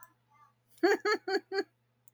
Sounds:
Laughter